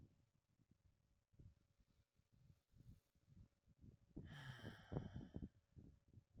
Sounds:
Sigh